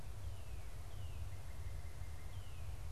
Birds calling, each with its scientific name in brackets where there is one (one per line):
Northern Cardinal (Cardinalis cardinalis)